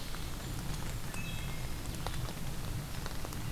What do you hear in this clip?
Wood Thrush